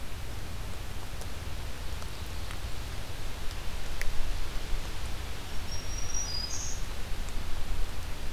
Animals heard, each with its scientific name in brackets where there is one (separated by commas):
Black-throated Green Warbler (Setophaga virens)